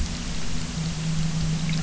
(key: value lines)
label: anthrophony, boat engine
recorder: SoundTrap 300